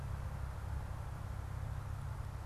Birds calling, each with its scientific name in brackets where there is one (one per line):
Black-capped Chickadee (Poecile atricapillus)